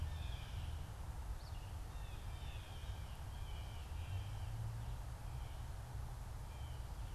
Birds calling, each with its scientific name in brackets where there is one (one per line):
Blue Jay (Cyanocitta cristata)